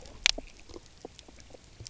{"label": "biophony, knock croak", "recorder": "SoundTrap 300"}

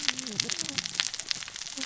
{"label": "biophony, cascading saw", "recorder": "SoundTrap 600 or HydroMoth"}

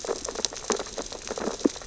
{"label": "biophony, sea urchins (Echinidae)", "recorder": "SoundTrap 600 or HydroMoth"}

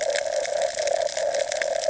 {"label": "ambient", "recorder": "HydroMoth"}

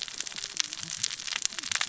{"label": "biophony, cascading saw", "recorder": "SoundTrap 600 or HydroMoth"}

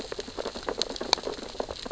{"label": "biophony, sea urchins (Echinidae)", "recorder": "SoundTrap 600 or HydroMoth"}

